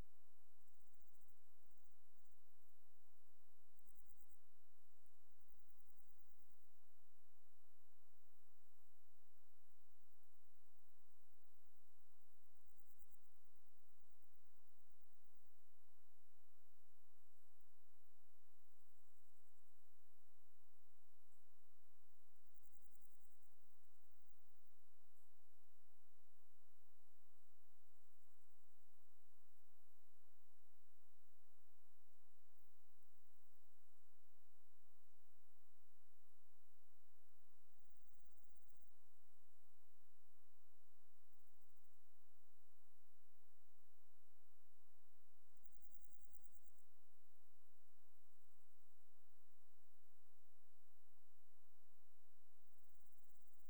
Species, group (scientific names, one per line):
Tettigonia viridissima
Orthoptera